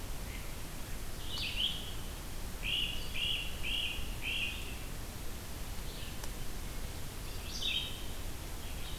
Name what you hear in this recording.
Great Crested Flycatcher, Red-eyed Vireo